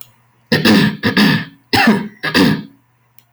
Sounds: Throat clearing